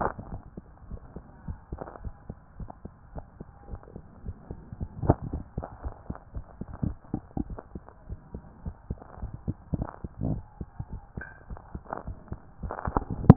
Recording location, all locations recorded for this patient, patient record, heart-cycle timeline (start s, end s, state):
tricuspid valve (TV)
pulmonary valve (PV)+tricuspid valve (TV)+tricuspid valve (TV)
#Age: Child
#Sex: Male
#Height: 123.0 cm
#Weight: 30.9 kg
#Pregnancy status: False
#Murmur: Absent
#Murmur locations: nan
#Most audible location: nan
#Systolic murmur timing: nan
#Systolic murmur shape: nan
#Systolic murmur grading: nan
#Systolic murmur pitch: nan
#Systolic murmur quality: nan
#Diastolic murmur timing: nan
#Diastolic murmur shape: nan
#Diastolic murmur grading: nan
#Diastolic murmur pitch: nan
#Diastolic murmur quality: nan
#Outcome: Normal
#Campaign: 2014 screening campaign
0.00	2.02	unannotated
2.02	2.14	S1
2.14	2.30	systole
2.30	2.38	S2
2.38	2.58	diastole
2.58	2.68	S1
2.68	2.85	systole
2.85	2.94	S2
2.94	3.14	diastole
3.14	3.24	S1
3.24	3.40	systole
3.40	3.48	S2
3.48	3.68	diastole
3.68	3.80	S1
3.80	3.95	systole
3.95	4.04	S2
4.04	4.24	diastole
4.24	4.36	S1
4.36	4.50	systole
4.50	4.58	S2
4.58	4.80	diastole
4.80	13.36	unannotated